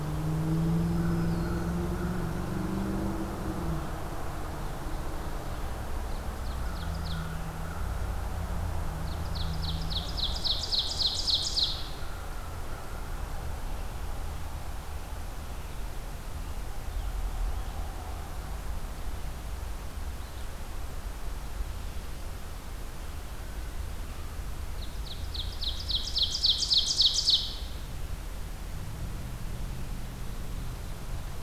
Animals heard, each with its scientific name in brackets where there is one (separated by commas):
Black-throated Green Warbler (Setophaga virens), Ovenbird (Seiurus aurocapilla), American Crow (Corvus brachyrhynchos)